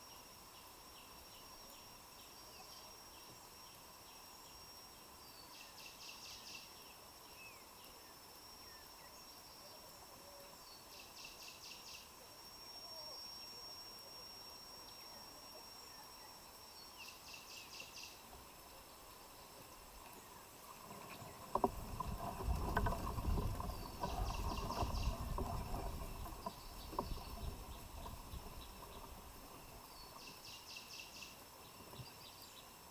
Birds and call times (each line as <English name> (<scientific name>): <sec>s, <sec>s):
Cinnamon Bracken-Warbler (Bradypterus cinnamomeus): 5.9s, 30.7s
African Emerald Cuckoo (Chrysococcyx cupreus): 8.6s